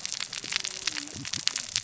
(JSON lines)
{"label": "biophony, cascading saw", "recorder": "SoundTrap 600 or HydroMoth"}